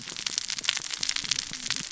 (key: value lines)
label: biophony, cascading saw
recorder: SoundTrap 600 or HydroMoth